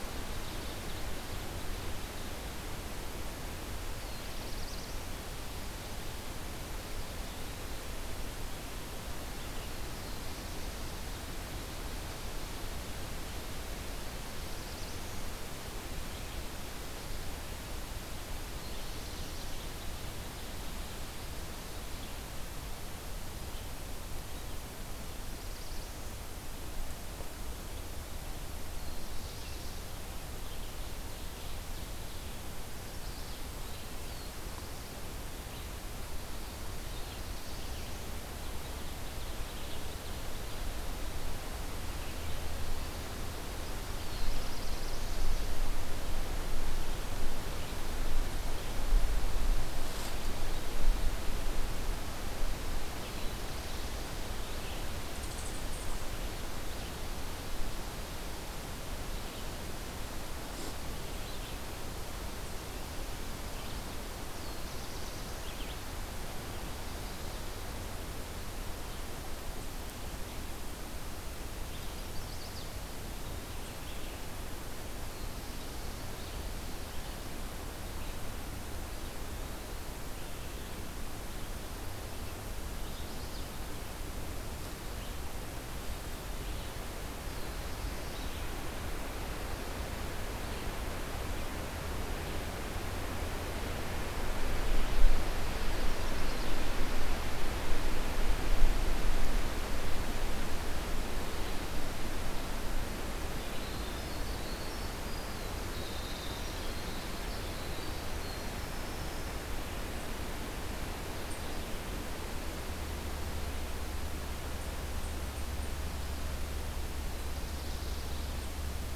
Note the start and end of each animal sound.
[0.07, 1.61] Ovenbird (Seiurus aurocapilla)
[3.74, 5.22] Black-throated Blue Warbler (Setophaga caerulescens)
[9.75, 11.11] Black-throated Blue Warbler (Setophaga caerulescens)
[14.03, 15.38] Black-throated Blue Warbler (Setophaga caerulescens)
[18.26, 19.64] Black-throated Blue Warbler (Setophaga caerulescens)
[24.77, 26.21] Black-throated Blue Warbler (Setophaga caerulescens)
[28.59, 29.87] Black-throated Blue Warbler (Setophaga caerulescens)
[30.82, 32.33] Ovenbird (Seiurus aurocapilla)
[33.87, 35.09] Black-throated Blue Warbler (Setophaga caerulescens)
[36.49, 38.17] Black-throated Blue Warbler (Setophaga caerulescens)
[38.23, 40.63] Ovenbird (Seiurus aurocapilla)
[43.79, 45.45] Black-throated Blue Warbler (Setophaga caerulescens)
[64.22, 65.46] Black-throated Blue Warbler (Setophaga caerulescens)
[71.78, 72.79] Chestnut-sided Warbler (Setophaga pensylvanica)
[74.83, 76.20] Black-throated Blue Warbler (Setophaga caerulescens)
[78.74, 80.05] Eastern Wood-Pewee (Contopus virens)
[82.56, 83.51] Chestnut-sided Warbler (Setophaga pensylvanica)
[87.18, 88.56] Black-throated Blue Warbler (Setophaga caerulescens)
[103.39, 109.60] Winter Wren (Troglodytes hiemalis)
[116.84, 118.56] Black-throated Blue Warbler (Setophaga caerulescens)

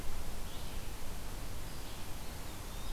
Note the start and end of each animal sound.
[0.00, 2.93] Red-eyed Vireo (Vireo olivaceus)
[2.13, 2.93] Eastern Wood-Pewee (Contopus virens)

